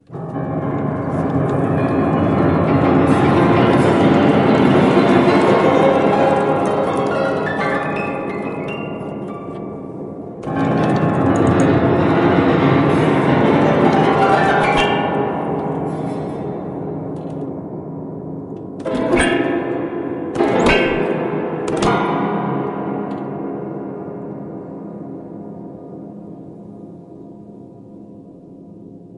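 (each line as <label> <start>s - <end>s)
An irregular, unsettling piano melody. 0.0s - 29.2s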